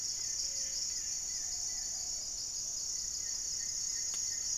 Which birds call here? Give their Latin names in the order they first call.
Akletos goeldii, Leptotila rufaxilla, Patagioenas plumbea